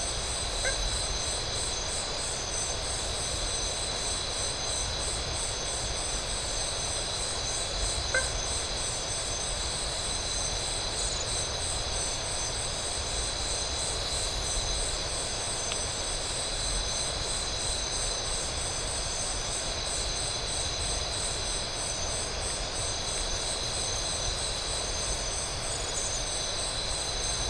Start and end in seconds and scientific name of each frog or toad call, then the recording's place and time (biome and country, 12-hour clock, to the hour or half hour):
0.6	0.9	Boana faber
7.9	8.6	Boana faber
Atlantic Forest, Brazil, 1:30am